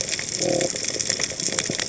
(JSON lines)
{"label": "biophony", "recorder": "HydroMoth"}